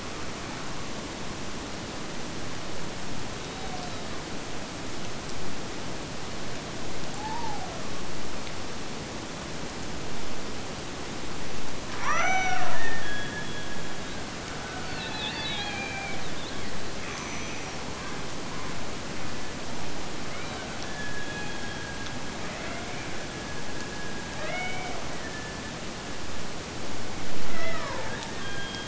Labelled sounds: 12.0	14.3	killer whale, Bigg's (transient), Gulf of Alaska transient, 0.33 to 6.1 kHz
20.3	26.3	killer whale, Bigg's (transient), Gulf of Alaska transient, 0.12 to 4.3 kHz
27.4	28.8	killer whale, Bigg's (transient), Gulf of Alaska transient, 0.33 to 3.6 kHz

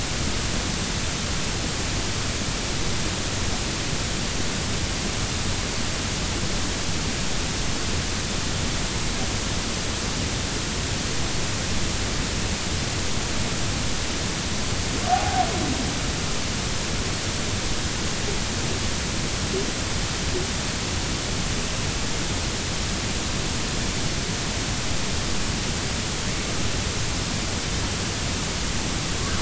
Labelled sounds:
15.1	15.5	humpback whale, 0.80 to 0.86 kHz

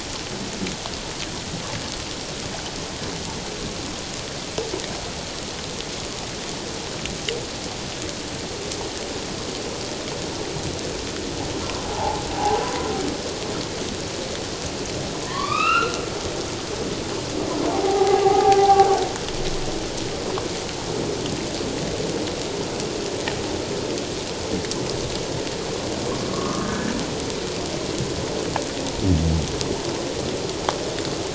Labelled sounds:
11.8	12.6	humpback whale, 0.78 to 1.0 kHz
15.2	16.0	humpback whale, 0.97 to 3.6 kHz
17.7	18.9	humpback whale, 0.78 to 1.6 kHz
26.3	26.9	humpback whale, 1.0 to 1.8 kHz

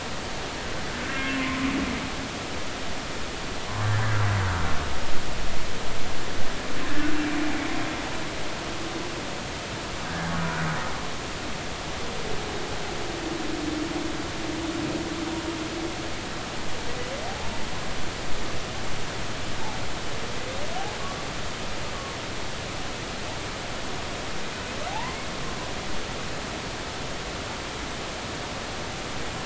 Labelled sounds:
1.4	1.6	humpback whale, 0.99 to 1.1 kHz
5.0	5.2	humpback whale, 1.5 to 1.8 kHz
10.3	10.6	humpback whale, 1.4 to 1.6 kHz
24.9	25.3	humpback whale, 0.80 to 2.2 kHz

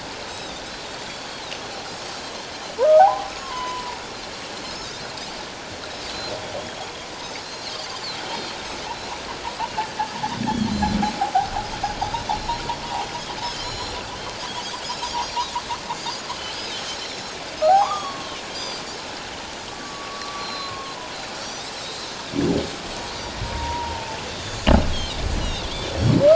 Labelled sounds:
0.3	1.2	Pacific white-sided dolphin, 3.4 to 6.0 kHz
2.9	4.0	humpback whale, 0.78 to 3.1 kHz
4.6	4.9	Pacific white-sided dolphin, 5.0 to 5.4 kHz
7.4	7.9	Pacific white-sided dolphin, 3.6 to 4.6 kHz
10.4	11.0	Pacific white-sided dolphin, 3.1 to 4.2 kHz
12.0	12.6	Pacific white-sided dolphin, 3.6 to 4.2 kHz
13.6	14.4	Pacific white-sided dolphin, 2.9 to 6.9 kHz
15.1	16.2	Pacific white-sided dolphin, 4.1 to 5.7 kHz
17.0	17.3	Pacific white-sided dolphin, 4.0 to 6.9 kHz
17.7	18.3	humpback whale, 0.78 to 6.9 kHz
18.5	18.8	Pacific white-sided dolphin, 4.7 to 7.4 kHz
19.7	20.5	humpback whale, 1.1 to 5.8 kHz
20.4	21.0	Pacific white-sided dolphin, 1.0 to 4.3 kHz
21.4	22.1	Pacific white-sided dolphin, 3.7 to 6.2 kHz
23.4	24.2	humpback whale, 0.84 to 1.0 kHz
24.3	26.0	Pacific white-sided dolphin, 2.6 to 3.7 kHz

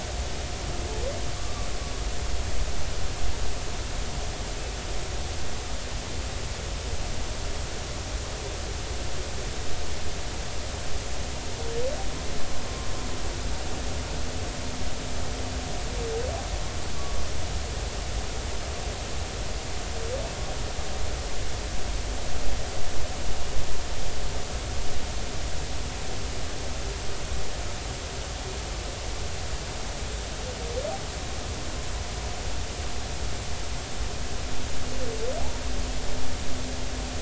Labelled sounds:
1.4	1.7	humpback whale, 1.1 to 1.2 kHz
17.0	17.2	humpback whale, 1.1 to 1.2 kHz

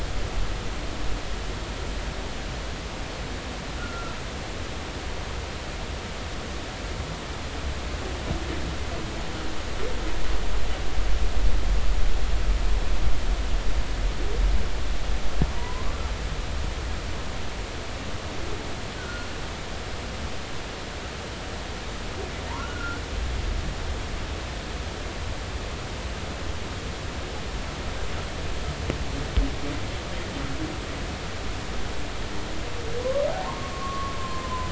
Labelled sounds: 3.8	4.2	humpback whale, 1.3 to 1.5 kHz
15.5	15.9	humpback whale, 0.93 to 1.1 kHz
19.0	19.3	humpback whale, 1.3 to 1.6 kHz
22.6	23.0	humpback whale, 1.3 to 1.5 kHz
33.0	34.6	humpback whale, 0.86 to 1.2 kHz

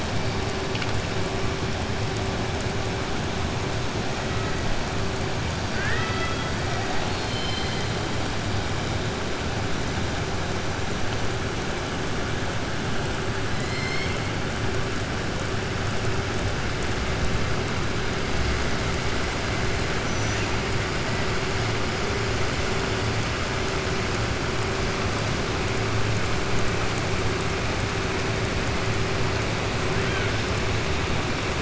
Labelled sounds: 5.7	6.5	killer whale, southern resident, 0.63 to 5.0 kHz
6.9	7.9	killer whale, southern resident, 2.1 to 5.2 kHz
13.5	14.2	killer whale, southern resident, 2.0 to 7.4 kHz
20.0	20.5	killer whale, southern resident, 5.8 to 6.9 kHz

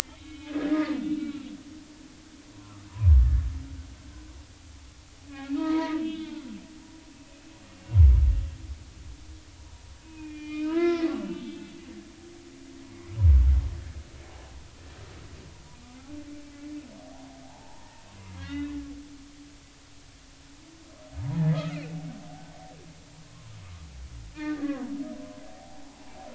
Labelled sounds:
0.2	1.5	humpback whale, 1.3 to 3.8 kHz
2.6	2.9	humpback whale, 0.93 to 1.4 kHz
5.3	6.6	humpback whale, 0.90 to 4.2 kHz
7.0	7.3	humpback whale, 3.3 to 3.6 kHz
10.0	11.6	humpback whale, 0.86 to 4.7 kHz
17.4	18.7	humpback whale, 0.80 to 3.8 kHz
21.5	21.9	humpback whale, 1.2 to 2.9 kHz
23.2	23.5	humpback whale, 0.90 to 1.2 kHz
24.3	25.8	humpback whale, 0.80 to 2.0 kHz

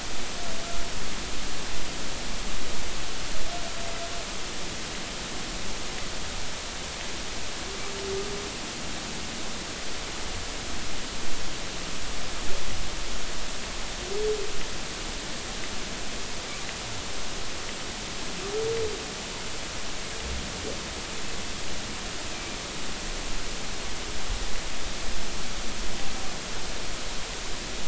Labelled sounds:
22.3	22.6	humpback whale, 2.3 to 2.5 kHz

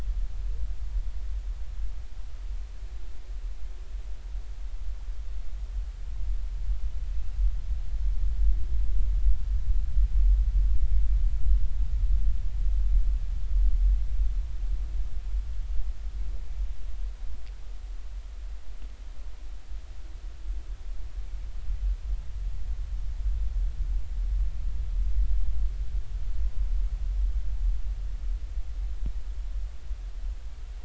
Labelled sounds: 7.1	7.4	humpback whale, 2.6 to 2.8 kHz

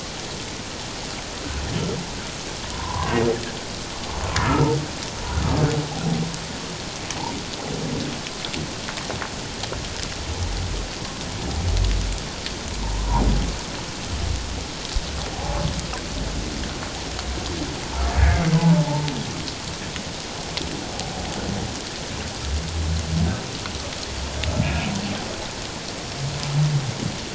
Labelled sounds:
2.7	3.1	humpback whale, 0.84 to 1.2 kHz
4.4	4.7	humpback whale, 1.2 to 1.4 kHz
12.9	13.2	humpback whale, 0.78 to 1.1 kHz
15.3	15.6	humpback whale, 0.78 to 0.88 kHz
18.5	18.8	humpback whale, 0.81 to 1.1 kHz
24.6	24.9	humpback whale, 2.2 to 2.7 kHz

